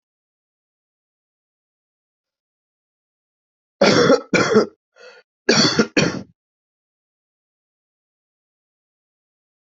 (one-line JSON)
{"expert_labels": [{"quality": "good", "cough_type": "wet", "dyspnea": false, "wheezing": false, "stridor": false, "choking": false, "congestion": false, "nothing": true, "diagnosis": "upper respiratory tract infection", "severity": "mild"}], "age": 19, "gender": "male", "respiratory_condition": false, "fever_muscle_pain": false, "status": "COVID-19"}